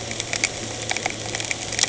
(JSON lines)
{"label": "anthrophony, boat engine", "recorder": "HydroMoth"}